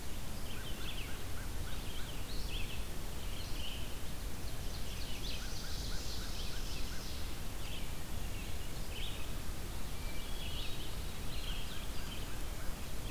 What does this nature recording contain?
Red-eyed Vireo, American Crow, Ovenbird, Hermit Thrush